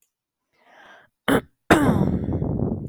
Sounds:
Throat clearing